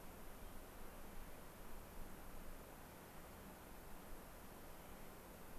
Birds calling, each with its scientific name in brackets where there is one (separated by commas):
Clark's Nutcracker (Nucifraga columbiana)